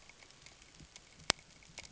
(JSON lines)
{"label": "ambient", "recorder": "HydroMoth"}